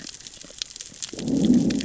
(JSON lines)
{"label": "biophony, growl", "recorder": "SoundTrap 600 or HydroMoth"}